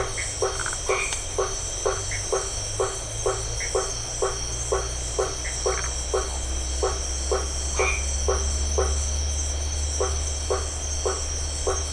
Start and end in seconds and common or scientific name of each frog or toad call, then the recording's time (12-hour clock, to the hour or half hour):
0.0	11.8	blacksmith tree frog
0.3	0.9	Phyllomedusa distincta
0.7	1.3	white-edged tree frog
2.1	2.3	Dendropsophus elegans
3.5	3.8	Dendropsophus elegans
5.3	5.7	Dendropsophus elegans
5.5	6.0	Phyllomedusa distincta
7.7	8.2	white-edged tree frog
8pm